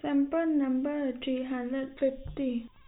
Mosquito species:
no mosquito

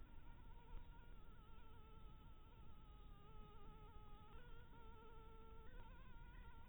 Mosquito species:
Anopheles harrisoni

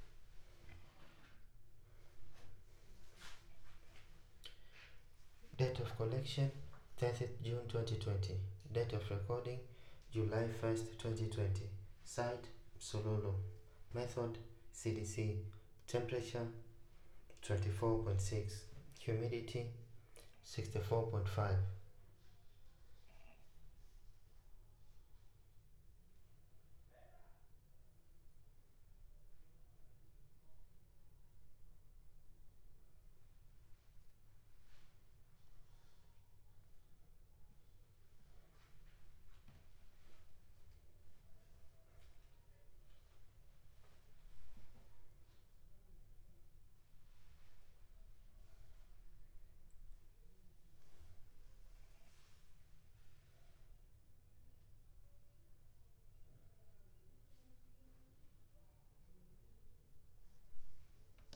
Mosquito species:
no mosquito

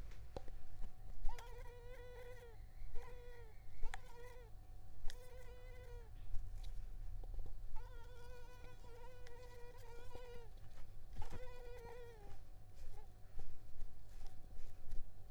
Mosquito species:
Culex tigripes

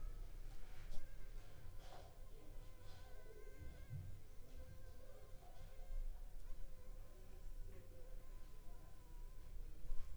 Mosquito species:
Anopheles funestus s.s.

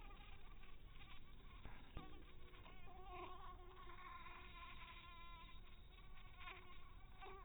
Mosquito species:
mosquito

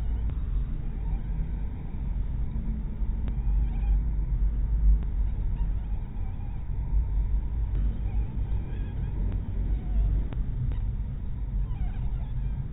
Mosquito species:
mosquito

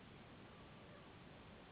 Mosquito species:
Anopheles gambiae s.s.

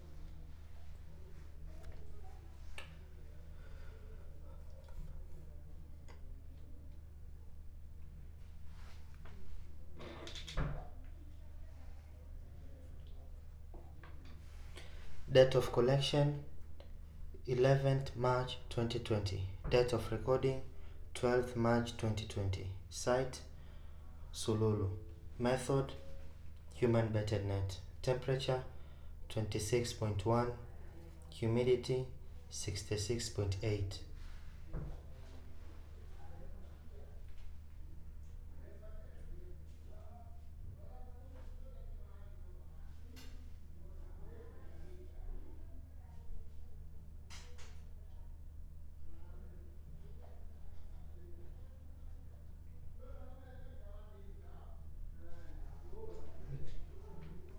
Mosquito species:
no mosquito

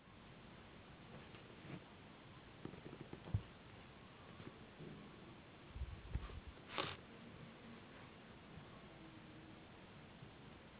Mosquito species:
Anopheles gambiae s.s.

